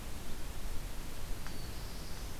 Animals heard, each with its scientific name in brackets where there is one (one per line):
Black-throated Blue Warbler (Setophaga caerulescens)